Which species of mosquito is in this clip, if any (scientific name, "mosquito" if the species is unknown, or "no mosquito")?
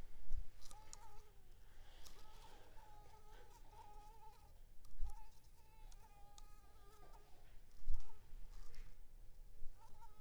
Culex pipiens complex